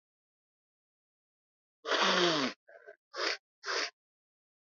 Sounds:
Sniff